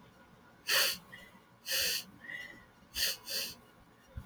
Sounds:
Sniff